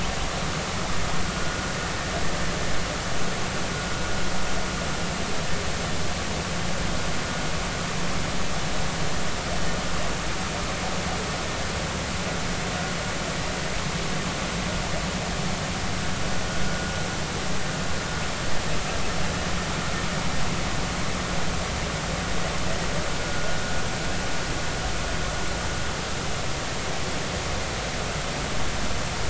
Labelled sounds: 1.3	1.6	vessel noise, 1.4 to 1.5 kHz

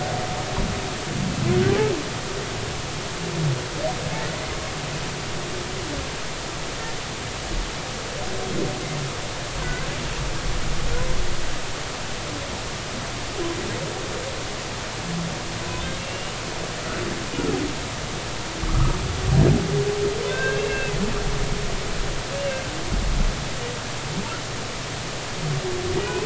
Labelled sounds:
9.6	9.9	humpback whale, 1.4 to 1.6 kHz
15.7	16.4	humpback whale, 2.6 to 3.8 kHz
18.6	19.0	humpback whale, 1.1 to 1.3 kHz
20.2	20.9	humpback whale, 1.5 to 3.7 kHz
26.0	26.2	humpback whale, 2.4 to 2.6 kHz

